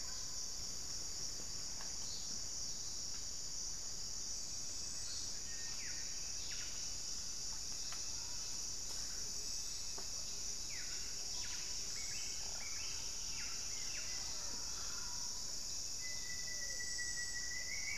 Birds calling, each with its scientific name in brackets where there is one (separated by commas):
Cinereous Tinamou (Crypturellus cinereus), Gilded Barbet (Capito auratus), White-flanked Antwren (Myrmotherula axillaris), Pale-vented Pigeon (Patagioenas cayennensis), Rufous-fronted Antthrush (Formicarius rufifrons), Buff-breasted Wren (Cantorchilus leucotis)